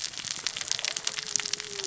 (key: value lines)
label: biophony, cascading saw
recorder: SoundTrap 600 or HydroMoth